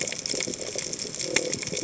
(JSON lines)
{"label": "biophony", "recorder": "HydroMoth"}